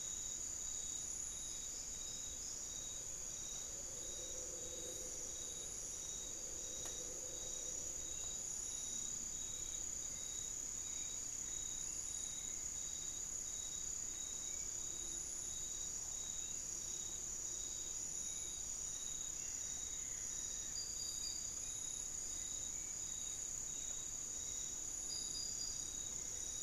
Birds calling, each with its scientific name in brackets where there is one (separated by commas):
unidentified bird, Hauxwell's Thrush (Turdus hauxwelli), Buff-throated Woodcreeper (Xiphorhynchus guttatus)